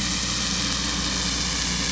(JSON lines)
{"label": "anthrophony, boat engine", "recorder": "SoundTrap 500"}